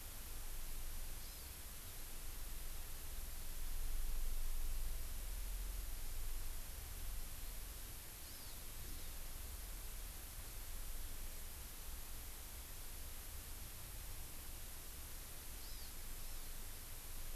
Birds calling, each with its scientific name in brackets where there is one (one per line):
Hawaii Amakihi (Chlorodrepanis virens)